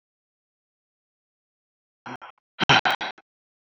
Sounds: Sigh